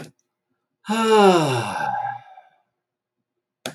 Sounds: Sigh